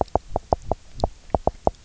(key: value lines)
label: biophony, knock
recorder: SoundTrap 300